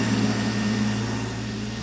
{"label": "anthrophony, boat engine", "recorder": "SoundTrap 500"}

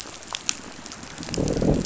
{"label": "biophony, growl", "recorder": "SoundTrap 500"}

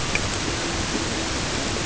{"label": "ambient", "recorder": "HydroMoth"}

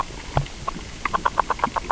{"label": "biophony, grazing", "recorder": "SoundTrap 600 or HydroMoth"}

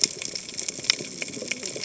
{"label": "biophony, cascading saw", "recorder": "HydroMoth"}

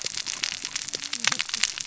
{"label": "biophony, cascading saw", "recorder": "SoundTrap 600 or HydroMoth"}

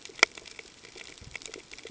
{"label": "ambient", "recorder": "HydroMoth"}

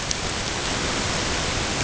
{"label": "ambient", "recorder": "HydroMoth"}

